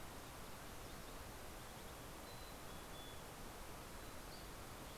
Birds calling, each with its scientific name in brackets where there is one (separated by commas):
Dusky Flycatcher (Empidonax oberholseri), Mountain Chickadee (Poecile gambeli)